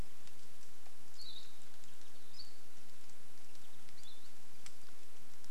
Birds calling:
Hawaii Akepa (Loxops coccineus)

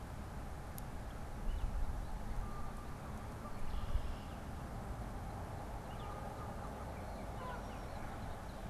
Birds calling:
Red-winged Blackbird (Agelaius phoeniceus)
American Goldfinch (Spinus tristis)
Canada Goose (Branta canadensis)
Baltimore Oriole (Icterus galbula)

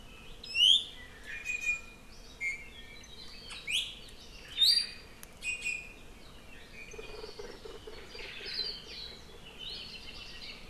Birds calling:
Iiwi (Drepanis coccinea)
Hawaii Akepa (Loxops coccineus)
Hawaii Creeper (Loxops mana)

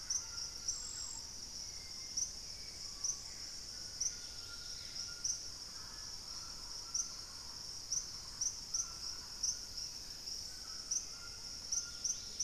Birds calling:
Thrush-like Wren (Campylorhynchus turdinus)
Hauxwell's Thrush (Turdus hauxwelli)
White-throated Toucan (Ramphastos tucanus)
Black-capped Becard (Pachyramphus marginatus)
Screaming Piha (Lipaugus vociferans)
Purple-throated Fruitcrow (Querula purpurata)
Dusky-capped Greenlet (Pachysylvia hypoxantha)
Gray Antbird (Cercomacra cinerascens)

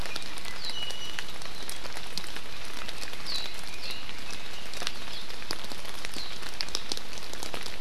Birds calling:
Red-billed Leiothrix (Leiothrix lutea)
Iiwi (Drepanis coccinea)

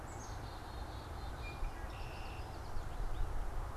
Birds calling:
Black-capped Chickadee (Poecile atricapillus)
Red-winged Blackbird (Agelaius phoeniceus)
Common Yellowthroat (Geothlypis trichas)

